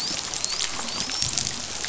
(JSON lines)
{"label": "biophony, dolphin", "recorder": "SoundTrap 500"}